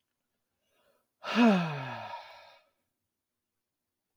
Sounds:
Sigh